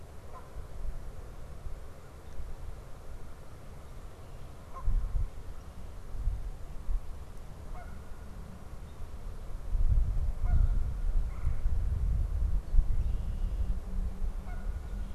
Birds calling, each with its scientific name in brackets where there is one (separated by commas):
Red-bellied Woodpecker (Melanerpes carolinus), Canada Goose (Branta canadensis), Red-winged Blackbird (Agelaius phoeniceus)